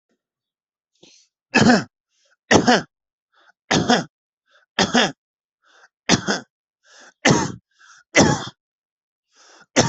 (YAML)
expert_labels:
- quality: good
  cough_type: dry
  dyspnea: false
  wheezing: false
  stridor: false
  choking: false
  congestion: false
  nothing: true
  diagnosis: obstructive lung disease
  severity: severe